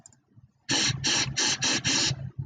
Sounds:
Sniff